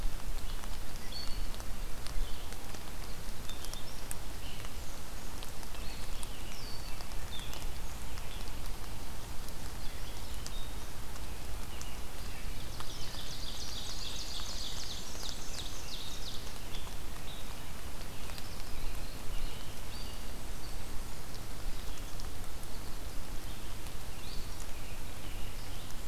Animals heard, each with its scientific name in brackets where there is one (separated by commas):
Rose-breasted Grosbeak (Pheucticus ludovicianus), unidentified call, Black-and-white Warbler (Mniotilta varia), American Robin (Turdus migratorius), Ovenbird (Seiurus aurocapilla)